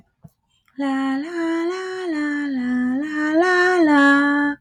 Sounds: Sigh